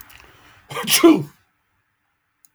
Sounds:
Sneeze